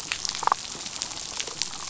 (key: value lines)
label: biophony, damselfish
recorder: SoundTrap 500